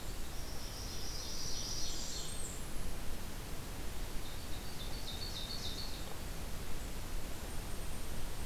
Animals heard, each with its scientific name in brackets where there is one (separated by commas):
Blackburnian Warbler (Setophaga fusca), Ovenbird (Seiurus aurocapilla)